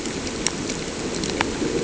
{"label": "anthrophony, boat engine", "recorder": "HydroMoth"}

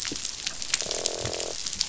{"label": "biophony, croak", "recorder": "SoundTrap 500"}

